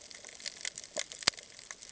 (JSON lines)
{"label": "ambient", "recorder": "HydroMoth"}